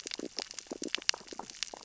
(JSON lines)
{"label": "biophony, sea urchins (Echinidae)", "recorder": "SoundTrap 600 or HydroMoth"}